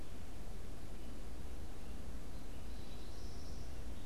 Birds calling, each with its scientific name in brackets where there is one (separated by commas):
American Goldfinch (Spinus tristis)